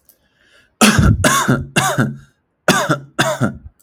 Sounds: Cough